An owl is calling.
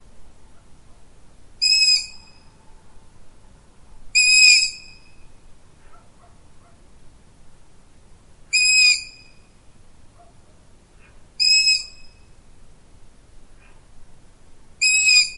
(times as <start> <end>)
1.5 2.2, 4.0 4.9, 8.5 9.1, 11.3 11.9, 14.7 15.4